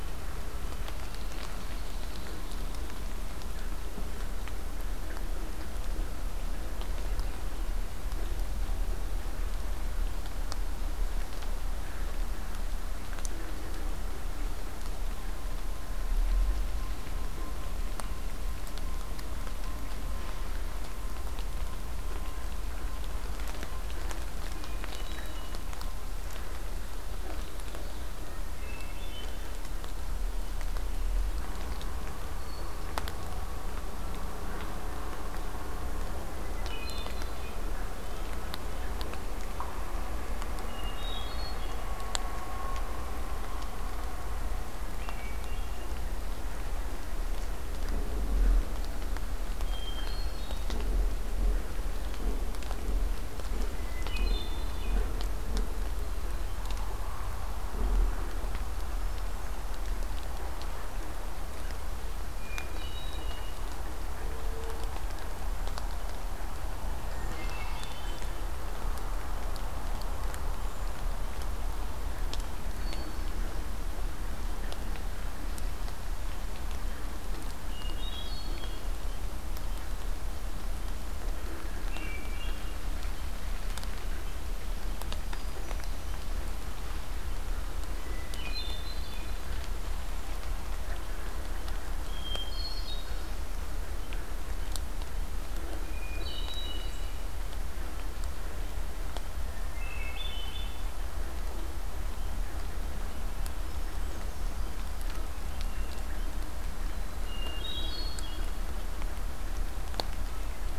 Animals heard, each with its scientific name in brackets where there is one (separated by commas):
Red-winged Blackbird (Agelaius phoeniceus), Hermit Thrush (Catharus guttatus), Ovenbird (Seiurus aurocapilla), Red-breasted Nuthatch (Sitta canadensis)